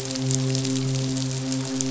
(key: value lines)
label: biophony, midshipman
recorder: SoundTrap 500